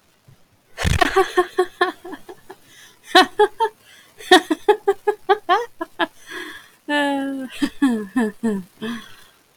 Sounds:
Laughter